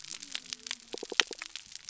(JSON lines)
{"label": "biophony", "recorder": "SoundTrap 300"}